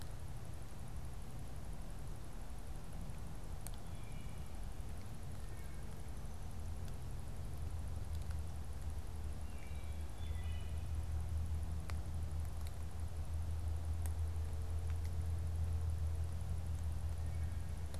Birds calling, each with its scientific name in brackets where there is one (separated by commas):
Wood Thrush (Hylocichla mustelina)